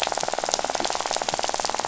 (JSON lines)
{"label": "biophony, rattle", "recorder": "SoundTrap 500"}